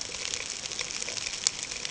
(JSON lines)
{"label": "ambient", "recorder": "HydroMoth"}